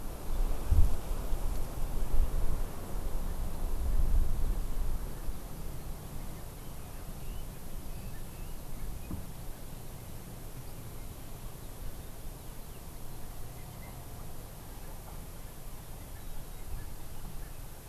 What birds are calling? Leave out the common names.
Leiothrix lutea